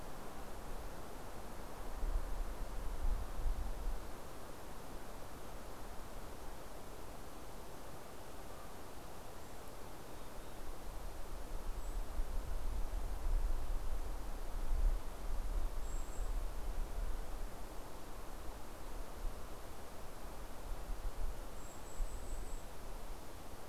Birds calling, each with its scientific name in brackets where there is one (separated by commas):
Golden-crowned Kinglet (Regulus satrapa), Mountain Chickadee (Poecile gambeli)